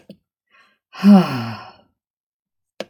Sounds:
Sigh